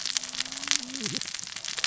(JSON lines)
{"label": "biophony, cascading saw", "recorder": "SoundTrap 600 or HydroMoth"}